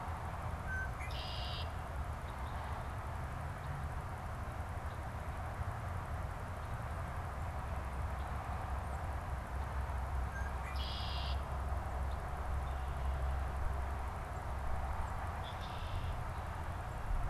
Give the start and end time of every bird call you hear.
0.5s-2.0s: Red-winged Blackbird (Agelaius phoeniceus)
10.1s-11.7s: Red-winged Blackbird (Agelaius phoeniceus)
15.3s-16.4s: Red-winged Blackbird (Agelaius phoeniceus)

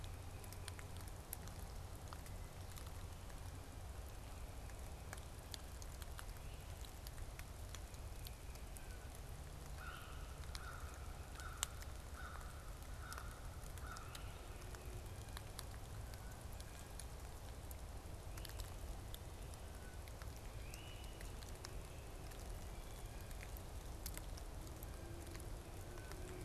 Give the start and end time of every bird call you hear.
9.6s-14.6s: American Crow (Corvus brachyrhynchos)
9.7s-10.1s: Great Crested Flycatcher (Myiarchus crinitus)
15.1s-17.3s: Blue Jay (Cyanocitta cristata)
20.5s-21.5s: Great Crested Flycatcher (Myiarchus crinitus)

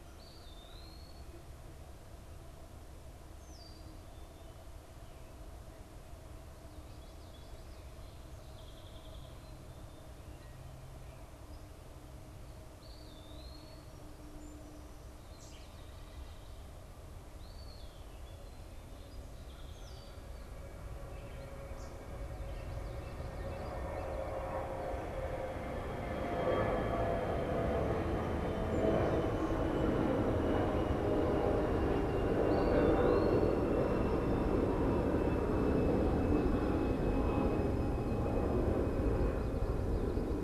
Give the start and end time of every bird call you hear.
0.0s-1.3s: Eastern Wood-Pewee (Contopus virens)
3.3s-4.1s: Red-winged Blackbird (Agelaius phoeniceus)
6.7s-7.8s: Common Yellowthroat (Geothlypis trichas)
8.4s-9.7s: unidentified bird
12.7s-13.8s: Eastern Wood-Pewee (Contopus virens)
14.2s-16.0s: Song Sparrow (Melospiza melodia)
17.3s-18.5s: Eastern Wood-Pewee (Contopus virens)
18.8s-20.2s: Song Sparrow (Melospiza melodia)
19.6s-20.2s: Red-winged Blackbird (Agelaius phoeniceus)
21.6s-22.0s: unidentified bird
32.4s-33.6s: Eastern Wood-Pewee (Contopus virens)

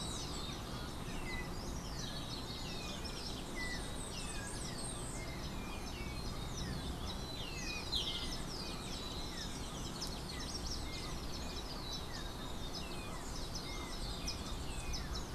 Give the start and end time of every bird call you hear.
1.1s-15.3s: Yellow-backed Oriole (Icterus chrysater)
7.3s-8.5s: Golden-faced Tyrannulet (Zimmerius chrysops)

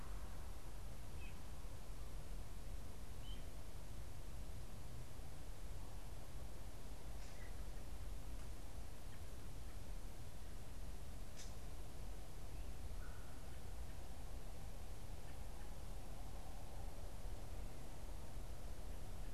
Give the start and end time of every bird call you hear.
0.9s-3.7s: unidentified bird

